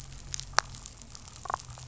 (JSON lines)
{"label": "biophony, damselfish", "recorder": "SoundTrap 500"}